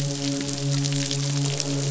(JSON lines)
{"label": "biophony, midshipman", "recorder": "SoundTrap 500"}
{"label": "biophony, croak", "recorder": "SoundTrap 500"}